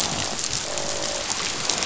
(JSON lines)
{"label": "biophony, croak", "recorder": "SoundTrap 500"}